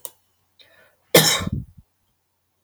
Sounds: Cough